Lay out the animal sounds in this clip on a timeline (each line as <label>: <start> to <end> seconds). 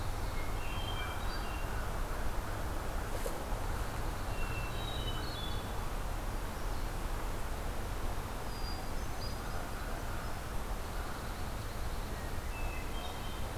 Hermit Thrush (Catharus guttatus): 0.2 to 1.7 seconds
Pine Warbler (Setophaga pinus): 3.4 to 5.1 seconds
Hermit Thrush (Catharus guttatus): 4.4 to 5.7 seconds
Hermit Thrush (Catharus guttatus): 8.3 to 9.9 seconds
Pine Warbler (Setophaga pinus): 10.6 to 12.5 seconds
Hermit Thrush (Catharus guttatus): 12.1 to 13.6 seconds